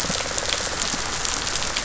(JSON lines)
{"label": "biophony, pulse", "recorder": "SoundTrap 500"}